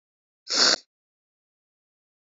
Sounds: Sniff